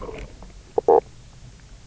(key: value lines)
label: biophony, knock croak
recorder: SoundTrap 300